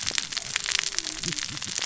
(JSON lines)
{"label": "biophony, cascading saw", "recorder": "SoundTrap 600 or HydroMoth"}